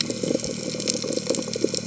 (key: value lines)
label: biophony
recorder: HydroMoth